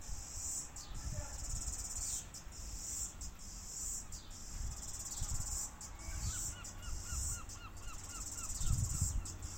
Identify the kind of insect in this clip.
cicada